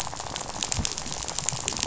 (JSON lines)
{"label": "biophony, rattle", "recorder": "SoundTrap 500"}